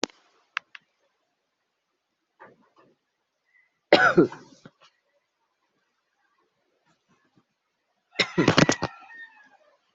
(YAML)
expert_labels:
- quality: good
  cough_type: dry
  dyspnea: false
  wheezing: false
  stridor: false
  choking: false
  congestion: false
  nothing: true
  diagnosis: upper respiratory tract infection
  severity: mild